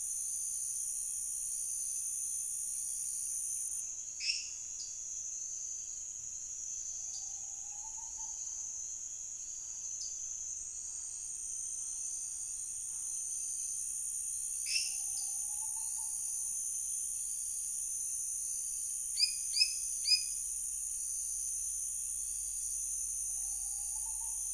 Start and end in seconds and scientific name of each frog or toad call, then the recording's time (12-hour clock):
4.1	4.6	Dendropsophus minutus
4.7	5.0	Dendropsophus nanus
7.1	7.3	Dendropsophus nanus
9.9	10.3	Dendropsophus nanus
14.6	15.0	Dendropsophus minutus
19.0	20.5	Dendropsophus minutus
7:15pm